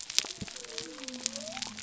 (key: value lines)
label: biophony
recorder: SoundTrap 300